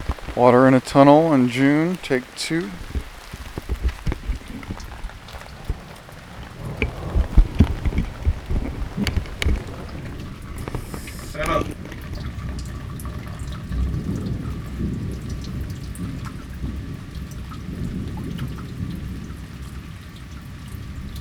What is running at the end of the sound?
water